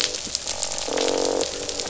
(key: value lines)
label: biophony, croak
recorder: SoundTrap 500